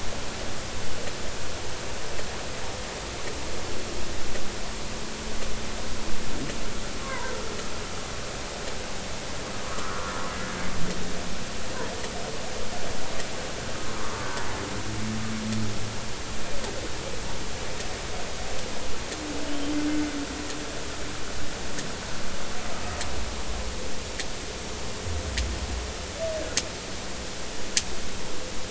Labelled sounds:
7.0	7.3	humpback whale, 0.90 to 1.2 kHz
9.7	10.6	humpback whale, 1.1 to 1.8 kHz
13.9	14.3	humpback whale, 0.93 to 1.3 kHz

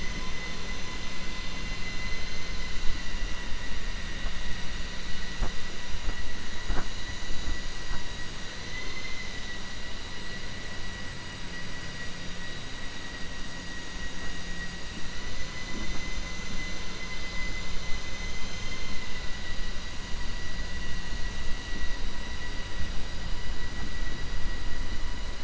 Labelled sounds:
8.6	9.3	vessel noise, 1.1 to 7.1 kHz
14.9	15.4	vessel noise, 1.0 to 3.0 kHz

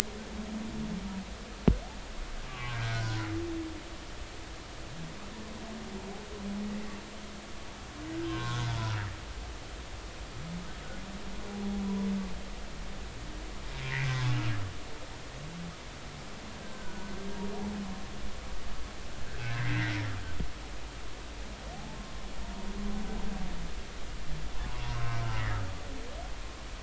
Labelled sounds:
2.5	3.2	humpback whale, 1.0 to 1.7 kHz
8.3	8.6	humpback whale, 0.93 to 1.7 kHz
14.0	14.3	humpback whale, 1.4 to 1.7 kHz
16.6	17.2	humpback whale, 1.4 to 1.6 kHz
19.5	20.1	humpback whale, 1.5 to 2.2 kHz
21.7	22.0	humpback whale, 0.80 to 0.93 kHz
24.9	25.2	humpback whale, 1.2 to 1.3 kHz

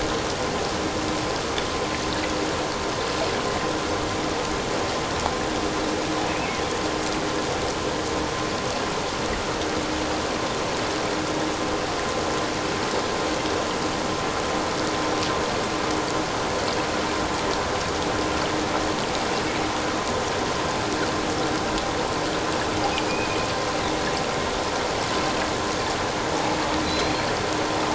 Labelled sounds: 23.1	23.4	killer whale, offshore, 2.4 to 2.6 kHz
26.8	27.3	killer whale, offshore, 3.9 to 4.3 kHz

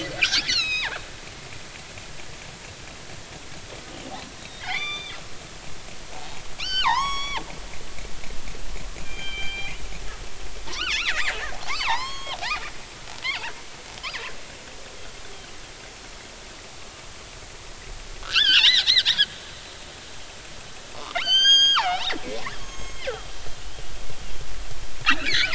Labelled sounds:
0.2	1.0	killer whale, northern resident, G clan, 0.80 to 6.9 kHz
4.4	5.2	killer whale, northern resident, G clan, 1.1 to 6.0 kHz
6.6	7.4	killer whale, northern resident, G clan, 0.80 to 8.0 kHz
9.0	9.8	killer whale, northern resident, G clan, 2.2 to 4.8 kHz
10.7	12.4	killer whale, northern resident, G clan, 0.80 to 6.6 kHz
13.2	14.3	killer whale, northern resident, G clan, 0.83 to 2.8 kHz
18.2	19.3	killer whale, northern resident, G clan, 1.2 to 5.4 kHz
21.1	22.1	killer whale, northern resident, G clan, 0.80 to 8.0 kHz
22.6	23.1	killer whale, northern resident, G clan, 2.0 to 6.6 kHz
25.0	25.5	killer whale, northern resident, G clan, 1.2 to 2.6 kHz

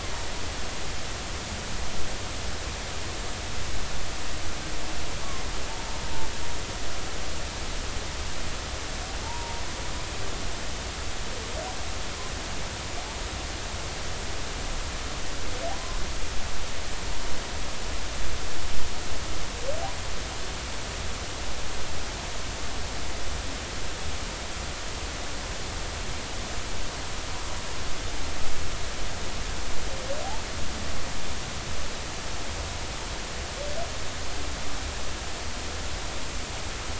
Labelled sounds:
5.7	6.0	humpback whale, 0.86 to 0.96 kHz
9.2	9.6	humpback whale, 0.83 to 0.99 kHz

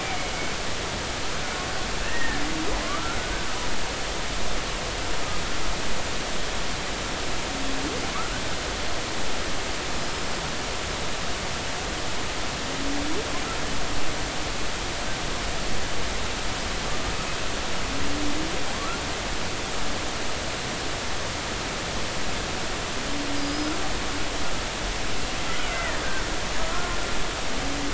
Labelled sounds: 2.0	3.2	killer whale, Bigg's (transient), 1.0 to 1.9 kHz
10.0	10.3	killer whale, Bigg's (transient), 5.0 to 5.2 kHz
23.4	23.7	killer whale, Bigg's (transient), 4.7 to 5.2 kHz
25.7	26.0	killer whale, Bigg's (transient), 1.7 to 2.3 kHz

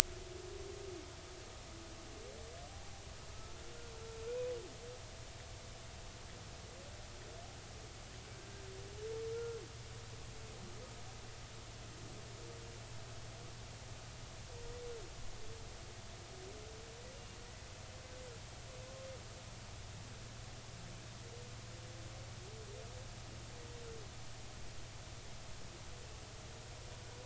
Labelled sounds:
3.3	3.6	humpback whale, 1.2 to 1.4 kHz
8.4	8.6	humpback whale, 1.5 to 1.7 kHz
9.3	9.6	humpback whale, 1.3 to 1.4 kHz

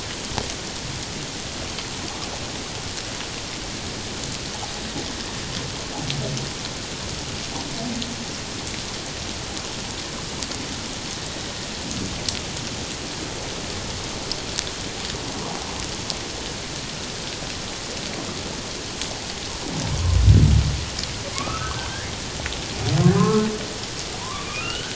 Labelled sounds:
21.3	21.9	humpback whale, 0.97 to 1.6 kHz
23.1	23.5	humpback whale, 0.97 to 1.4 kHz
24.2	24.9	humpback whale, 0.91 to 3.2 kHz

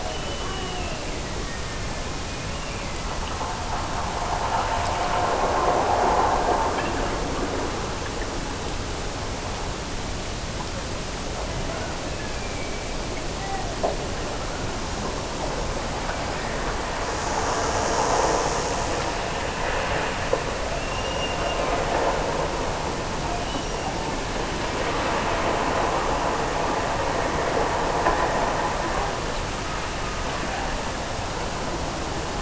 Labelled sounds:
0.0	3.4	killer whale, Bigg's (transient), Gulf of Alaska transient, 1.6 to 3.1 kHz
11.6	12.5	killer whale, Bigg's (transient), Gulf of Alaska transient, 1.1 to 2.4 kHz
20.7	22.5	killer whale, Bigg's (transient), Gulf of Alaska transient, 1.3 to 5.8 kHz

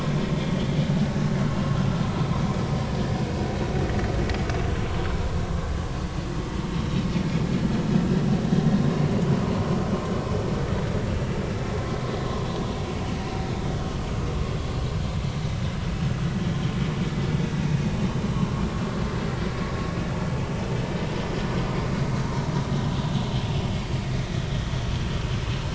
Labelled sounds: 0.6	0.8	vessel noise, 3.1 to 3.5 kHz
1.5	1.8	vessel noise, 2.7 to 2.9 kHz
13.7	14.0	vessel noise, 3.0 to 3.2 kHz
23.7	23.9	vessel noise, 4.5 to 4.8 kHz

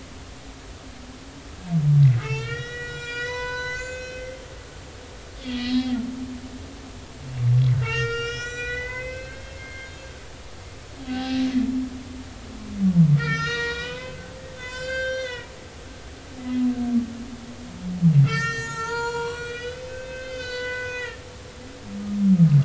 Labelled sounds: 2.2	4.4	humpback whale, 0.93 to 7.3 kHz
5.6	5.9	humpback whale, 3.1 to 4.4 kHz
7.8	9.9	humpback whale, 1.3 to 7.3 kHz
11.0	11.4	humpback whale, 0.80 to 4.0 kHz
13.2	15.5	humpback whale, 0.90 to 7.4 kHz
18.2	21.8	humpback whale, 0.86 to 7.7 kHz

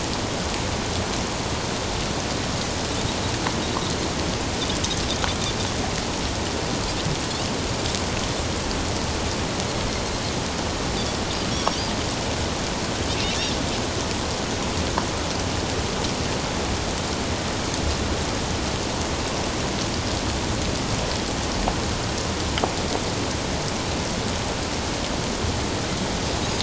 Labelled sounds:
11.5	11.8	Pacific white-sided dolphin, 5.4 to 5.7 kHz

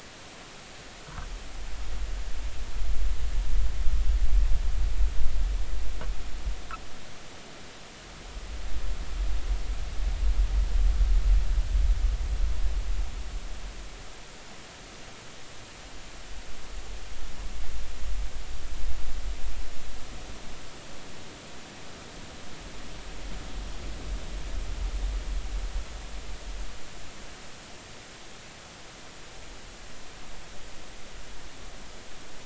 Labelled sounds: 1.0	1.3	humpback whale, 0.93 to 1.6 kHz

